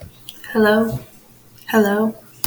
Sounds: Cough